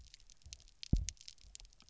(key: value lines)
label: biophony, double pulse
recorder: SoundTrap 300